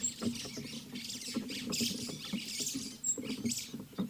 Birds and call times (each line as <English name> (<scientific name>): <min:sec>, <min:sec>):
White-browed Sparrow-Weaver (Plocepasser mahali): 0:01.2